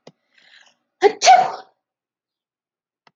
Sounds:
Sneeze